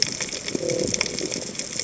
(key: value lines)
label: biophony
recorder: HydroMoth